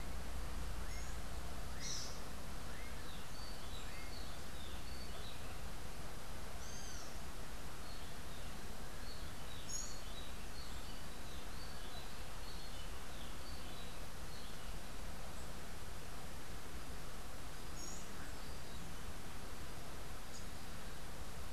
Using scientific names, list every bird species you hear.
Dives dives, Pheugopedius rutilus, Basileuterus rufifrons